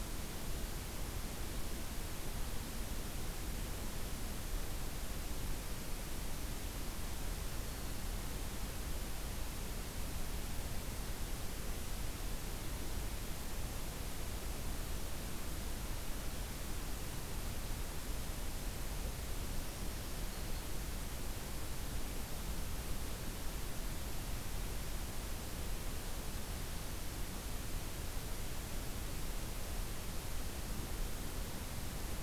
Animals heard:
forest ambience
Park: Acadia National Park